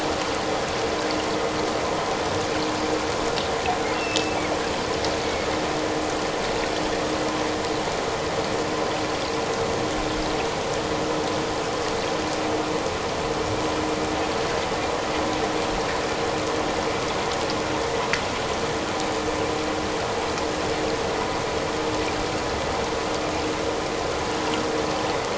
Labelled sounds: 3.9	4.4	killer whale, offshore, 2.6 to 2.8 kHz
5.2	5.5	killer whale, offshore, 2.1 to 2.3 kHz

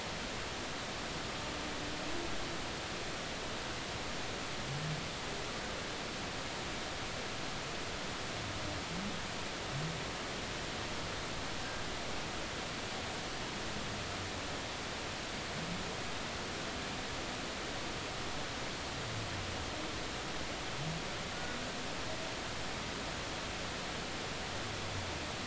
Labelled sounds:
11.6	11.8	humpback whale, 1.5 to 1.7 kHz

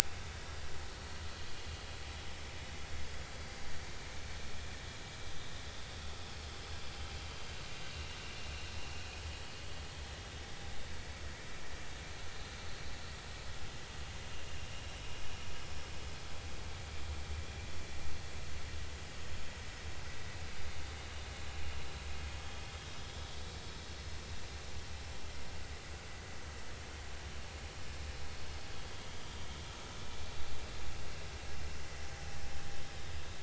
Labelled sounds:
10.3	10.5	vessel noise, 3.6 to 3.8 kHz
15.6	15.8	vessel noise, 5.1 to 5.4 kHz

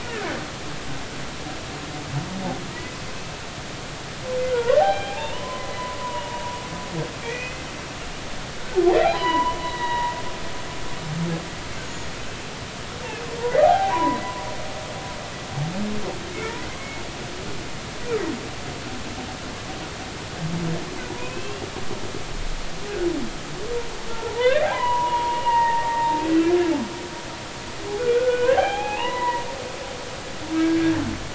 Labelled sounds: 0.0	0.3	humpback whale, 1.5 to 2.0 kHz
4.5	6.4	humpback whale, 0.80 to 3.3 kHz
7.2	7.7	humpback whale, 1.8 to 2.6 kHz
9.0	10.2	humpback whale, 0.80 to 4.1 kHz
11.8	12.1	humpback whale, 6.6 to 6.8 kHz
13.0	13.3	humpback whale, 2.4 to 2.8 kHz
13.6	14.2	humpback whale, 0.80 to 1.2 kHz
21.1	21.7	humpback whale, 0.90 to 2.9 kHz
24.1	26.2	humpback whale, 0.80 to 3.4 kHz
28.0	29.5	humpback whale, 0.80 to 3.4 kHz

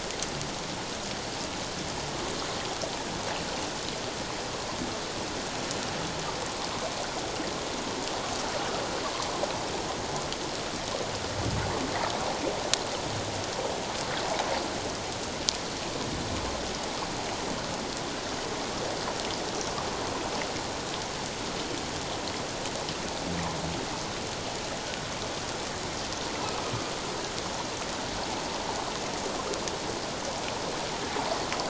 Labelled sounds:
26.4	26.6	humpback whale, 2.5 to 2.7 kHz

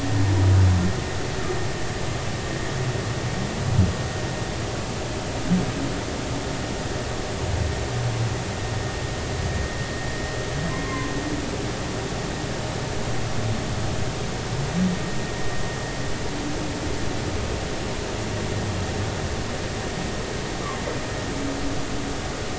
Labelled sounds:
10.8	11.1	humpback whale, 0.99 to 1.2 kHz

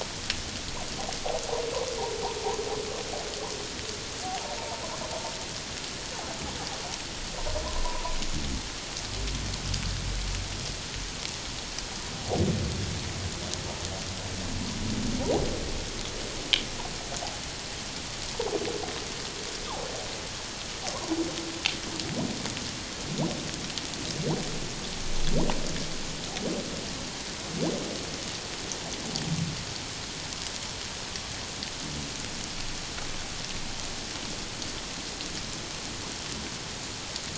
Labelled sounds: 4.6	4.8	humpback whale, 0.84 to 1.0 kHz
7.8	8.2	humpback whale, 0.91 to 1.1 kHz

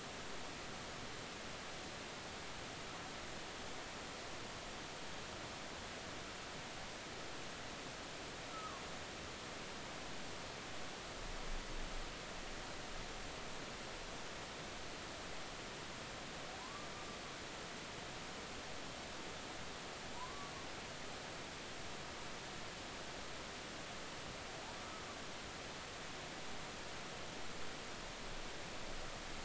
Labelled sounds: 8.5	8.8	humpback whale, 0.99 to 1.4 kHz
16.6	16.9	humpback whale, 0.93 to 1.2 kHz
20.2	20.5	humpback whale, 0.90 to 1.2 kHz

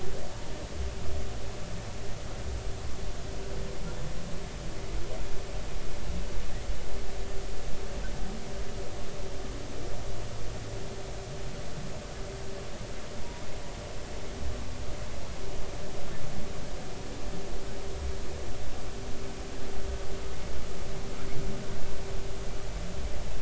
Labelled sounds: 0.3	0.6	humpback whale, 0.86 to 0.96 kHz

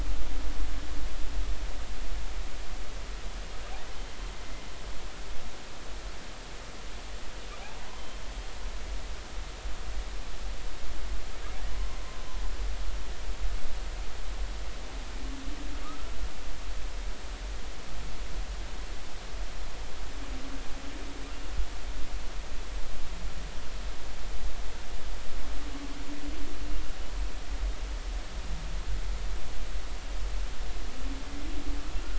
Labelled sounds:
15.8	16.2	humpback whale, 1.1 to 1.4 kHz

